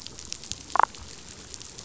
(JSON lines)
{"label": "biophony, damselfish", "recorder": "SoundTrap 500"}